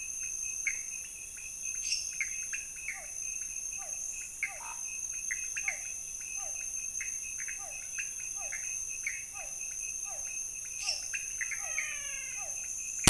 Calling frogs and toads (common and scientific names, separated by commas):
pointedbelly frog (Leptodactylus podicipinus), Pithecopus azureus, lesser tree frog (Dendropsophus minutus), Physalaemus cuvieri, Scinax fuscovarius, menwig frog (Physalaemus albonotatus)